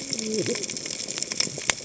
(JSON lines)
{"label": "biophony, cascading saw", "recorder": "HydroMoth"}